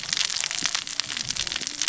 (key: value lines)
label: biophony, cascading saw
recorder: SoundTrap 600 or HydroMoth